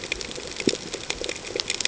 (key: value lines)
label: ambient
recorder: HydroMoth